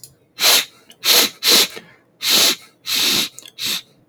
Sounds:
Sniff